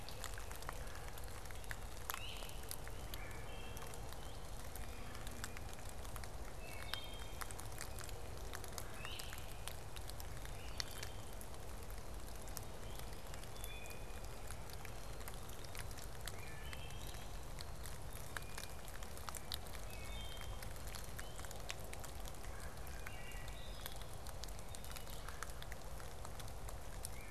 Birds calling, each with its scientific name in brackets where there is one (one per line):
Wood Thrush (Hylocichla mustelina)
Black-capped Chickadee (Poecile atricapillus)
Great Crested Flycatcher (Myiarchus crinitus)
Red-bellied Woodpecker (Melanerpes carolinus)
Blue Jay (Cyanocitta cristata)
Blue-headed Vireo (Vireo solitarius)